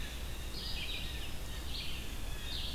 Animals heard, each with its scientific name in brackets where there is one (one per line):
Blue Jay (Cyanocitta cristata)
Red-eyed Vireo (Vireo olivaceus)